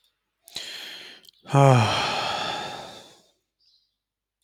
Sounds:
Sigh